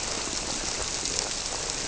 {"label": "biophony", "recorder": "SoundTrap 300"}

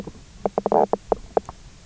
{"label": "biophony, knock croak", "recorder": "SoundTrap 300"}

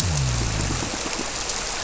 {"label": "biophony", "recorder": "SoundTrap 300"}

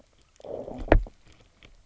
{"label": "biophony, low growl", "recorder": "SoundTrap 300"}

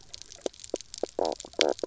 {"label": "biophony, knock croak", "recorder": "SoundTrap 300"}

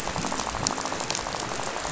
{"label": "biophony, rattle", "recorder": "SoundTrap 500"}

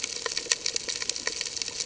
{"label": "ambient", "recorder": "HydroMoth"}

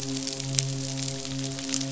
{"label": "biophony, midshipman", "recorder": "SoundTrap 500"}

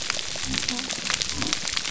{"label": "biophony", "recorder": "SoundTrap 300"}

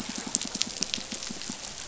{"label": "biophony, pulse", "recorder": "SoundTrap 500"}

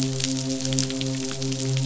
{"label": "biophony, midshipman", "recorder": "SoundTrap 500"}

